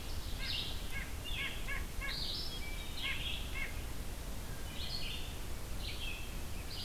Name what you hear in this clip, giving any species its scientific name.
Seiurus aurocapilla, Vireo olivaceus, Sitta carolinensis, Hylocichla mustelina